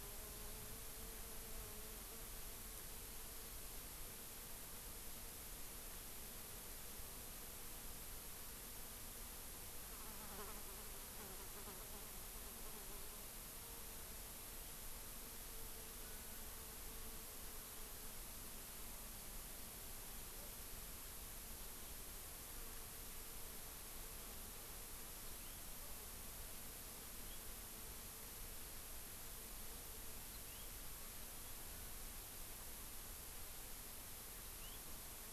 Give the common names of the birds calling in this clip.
House Finch